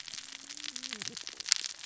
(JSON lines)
{"label": "biophony, cascading saw", "recorder": "SoundTrap 600 or HydroMoth"}